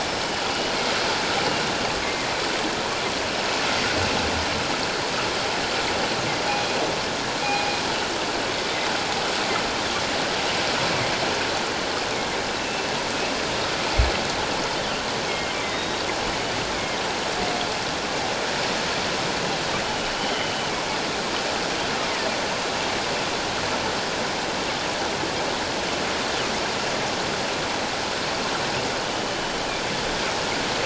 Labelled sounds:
2.0	2.3	killer whale, northern resident, G clan, 2.0 to 2.2 kHz
6.5	7.7	killer whale, northern resident, G clan, 2.4 to 2.5 kHz
12.6	12.9	killer whale, northern resident, G clan, 2.6 to 2.7 kHz
15.3	16.0	killer whale, northern resident, G clan, 2.1 to 3.8 kHz
16.7	17.0	killer whale, northern resident, G clan, 2.0 to 2.4 kHz
20.3	20.5	killer whale, northern resident, G clan, 2.9 to 3.2 kHz

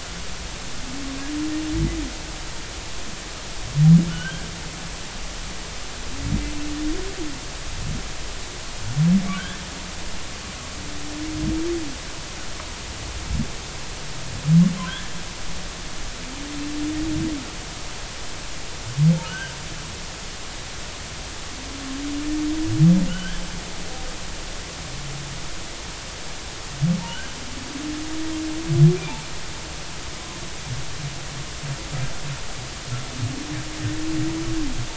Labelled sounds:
4.1	4.5	humpback whale, 1.3 to 3.3 kHz
9.3	9.6	humpback whale, 1.4 to 1.8 kHz
19.2	19.5	humpback whale, 1.4 to 3.2 kHz
23.1	23.5	humpback whale, 1.4 to 3.5 kHz

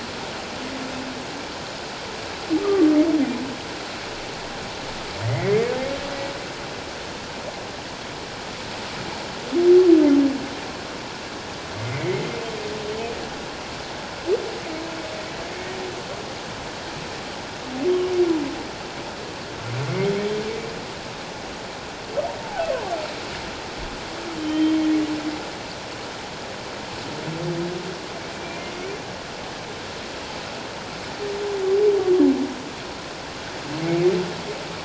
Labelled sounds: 2.6	2.9	humpback whale, 1.1 to 1.3 kHz
5.2	5.6	humpback whale, 1.8 to 2.3 kHz
11.8	12.2	humpback whale, 1.9 to 2.5 kHz
22.4	22.7	humpback whale, 0.78 to 0.94 kHz
24.4	24.8	humpback whale, 1.8 to 3.2 kHz
28.4	28.6	humpback whale, 2.2 to 2.5 kHz
33.8	34.1	humpback whale, 2.1 to 2.3 kHz

